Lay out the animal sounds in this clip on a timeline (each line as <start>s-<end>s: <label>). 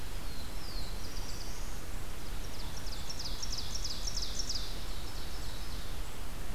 0.0s-2.0s: Black-throated Blue Warbler (Setophaga caerulescens)
2.4s-6.1s: Ovenbird (Seiurus aurocapilla)